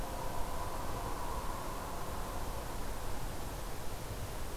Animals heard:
forest ambience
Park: Marsh-Billings-Rockefeller National Historical Park